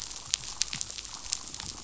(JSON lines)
{"label": "biophony, chatter", "recorder": "SoundTrap 500"}